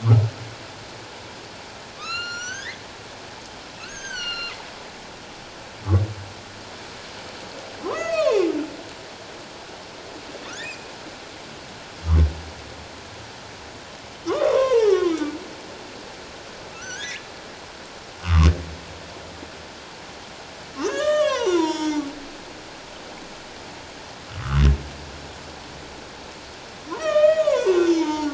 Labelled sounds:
2.0	4.6	humpback whale, 1.0 to 7.4 kHz
7.8	8.5	humpback whale, 0.78 to 6.7 kHz
10.5	10.9	humpback whale, 1.1 to 2.7 kHz
14.2	15.2	humpback whale, 0.81 to 6.0 kHz
16.7	17.3	humpback whale, 1.3 to 3.1 kHz
18.2	18.5	humpback whale, 0.97 to 1.4 kHz
20.8	22.0	humpback whale, 0.84 to 7.4 kHz
27.0	28.3	humpback whale, 0.84 to 7.0 kHz

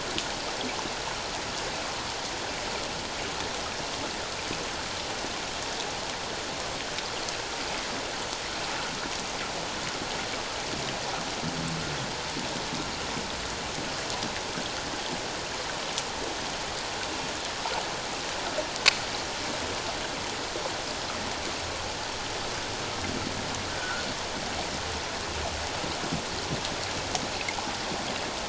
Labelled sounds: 23.7	24.0	humpback whale, 1.3 to 1.6 kHz

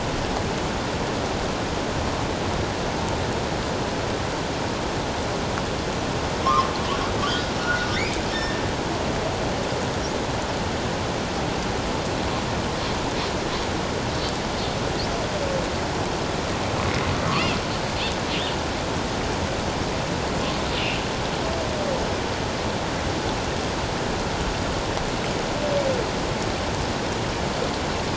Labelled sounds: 6.5	6.7	humpback whale, 0.97 to 1.3 kHz
7.6	8.6	humpback whale, 1.4 to 2.5 kHz

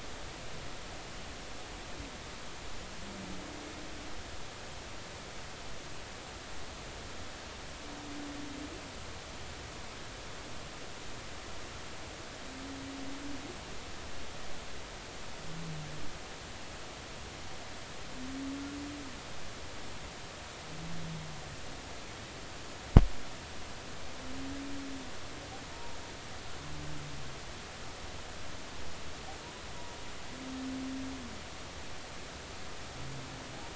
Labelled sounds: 25.7	26.0	humpback whale, 0.86 to 0.99 kHz

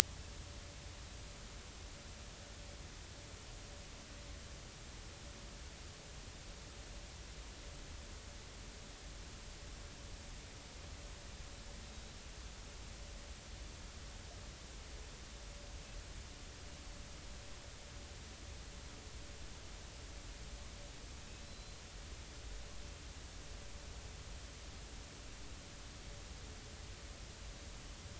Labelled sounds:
21.5	21.8	killer whale, 3.9 to 4.2 kHz

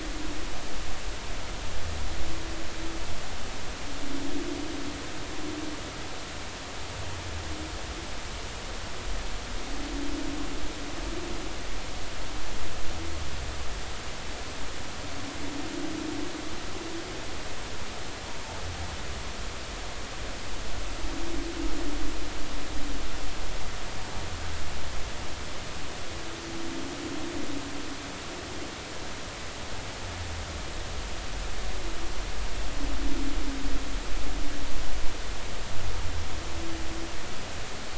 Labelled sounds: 18.3	18.6	humpback whale, 0.80 to 0.99 kHz

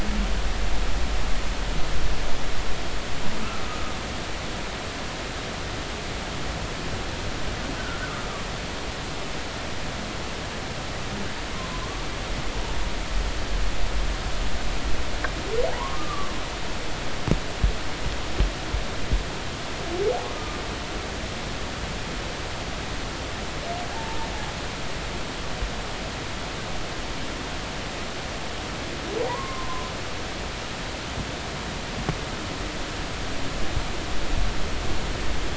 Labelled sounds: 7.8	8.1	humpback whale, 1.3 to 1.6 kHz
11.7	12.1	humpback whale, 0.96 to 1.2 kHz
15.9	16.3	humpback whale, 1.1 to 1.3 kHz
20.3	20.6	humpback whale, 1.2 to 1.3 kHz
23.9	24.2	humpback whale, 0.80 to 0.96 kHz
29.3	29.9	humpback whale, 0.90 to 1.2 kHz

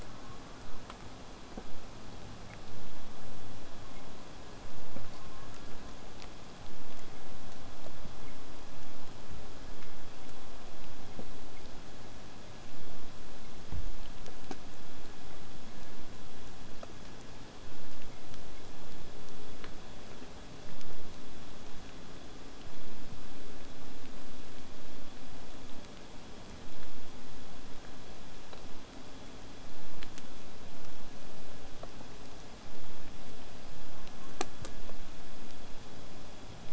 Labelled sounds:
0.0	0.8	killer whale, southern resident, J pod, call S04, 0.23 to 1.8 kHz
5.1	6.0	killer whale, southern resident, J pod, call S04, 0.85 to 1.8 kHz
33.9	34.8	killer whale, southern resident, J pod, call S04, 0.66 to 1.9 kHz

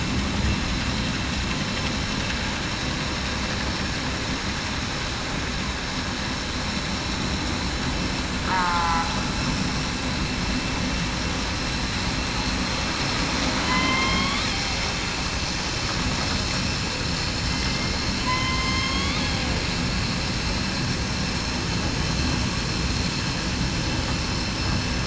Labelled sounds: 8.5	9.0	killer whale, southern resident, 1.1 to 1.4 kHz
13.6	14.4	killer whale, southern resident, 0.98 to 3.6 kHz
18.2	18.9	killer whale, southern resident, 0.96 to 1.1 kHz

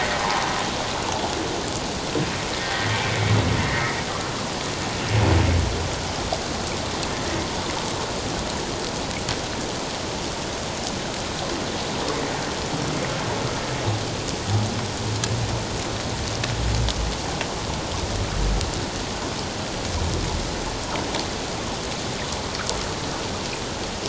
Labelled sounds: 2.9	3.2	humpback whale, 2.2 to 2.4 kHz

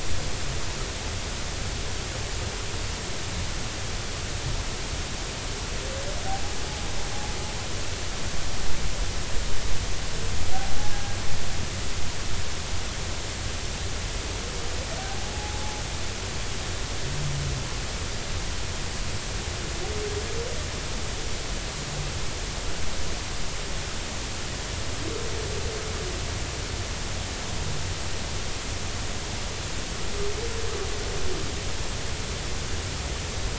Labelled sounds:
15.3	15.6	humpback whale, 0.80 to 0.90 kHz

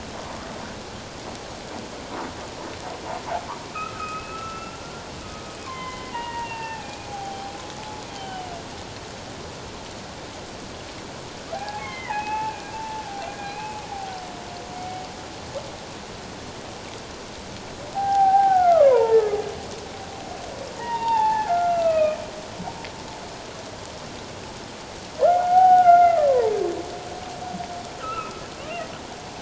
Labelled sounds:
3.7	4.8	humpback whale, 1.2 to 2.8 kHz
5.6	7.5	humpback whale, 0.78 to 3.2 kHz
8.1	8.5	humpback whale, 2.8 to 3.2 kHz
11.5	15.0	humpback whale, 0.78 to 3.2 kHz
17.9	19.4	humpback whale, 0.78 to 1.8 kHz
20.7	22.2	humpback whale, 0.78 to 3.8 kHz
25.2	26.5	humpback whale, 0.78 to 2.2 kHz
28.0	28.4	humpback whale, 0.97 to 2.8 kHz

